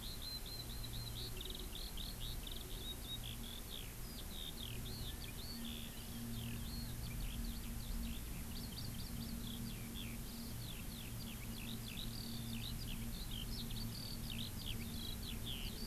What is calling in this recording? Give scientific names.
Alauda arvensis